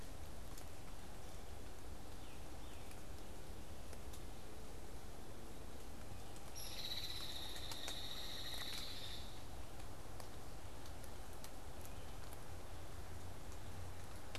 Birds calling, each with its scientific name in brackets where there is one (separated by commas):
Tufted Titmouse (Baeolophus bicolor), Hairy Woodpecker (Dryobates villosus)